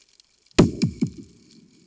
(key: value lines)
label: anthrophony, bomb
recorder: HydroMoth